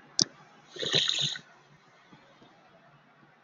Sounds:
Sneeze